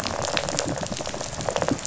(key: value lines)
label: biophony, rattle response
recorder: SoundTrap 500